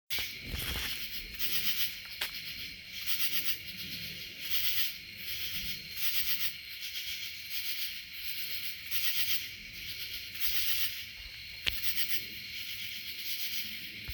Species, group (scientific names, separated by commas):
Pterophylla camellifolia, Orthoptera